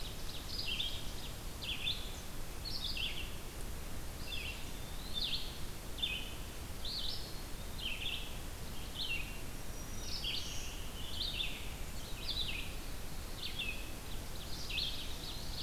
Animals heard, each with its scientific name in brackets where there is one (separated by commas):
Ovenbird (Seiurus aurocapilla), Black-throated Green Warbler (Setophaga virens), Red-eyed Vireo (Vireo olivaceus), Scarlet Tanager (Piranga olivacea), Eastern Wood-Pewee (Contopus virens), Black-capped Chickadee (Poecile atricapillus)